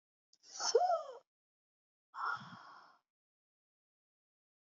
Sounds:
Sigh